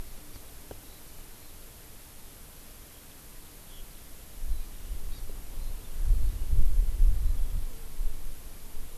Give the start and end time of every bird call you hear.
0.8s-1.0s: Eurasian Skylark (Alauda arvensis)
3.6s-3.8s: Eurasian Skylark (Alauda arvensis)
5.1s-5.2s: Hawaii Amakihi (Chlorodrepanis virens)

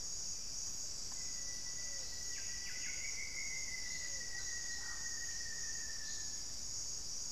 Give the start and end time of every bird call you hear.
0.0s-3.3s: Buff-breasted Wren (Cantorchilus leucotis)
0.0s-7.3s: Pale-vented Pigeon (Patagioenas cayennensis)
0.8s-6.7s: Rufous-fronted Antthrush (Formicarius rufifrons)

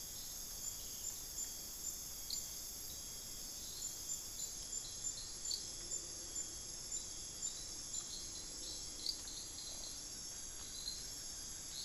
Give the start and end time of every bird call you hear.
0.0s-11.8s: Hauxwell's Thrush (Turdus hauxwelli)
10.1s-11.8s: Blue-crowned Trogon (Trogon curucui)

